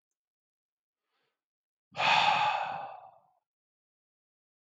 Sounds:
Sigh